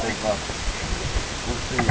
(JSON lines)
{"label": "ambient", "recorder": "HydroMoth"}